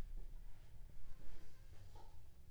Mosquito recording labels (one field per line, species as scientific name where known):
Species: Aedes aegypti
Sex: female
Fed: unfed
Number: one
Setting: cup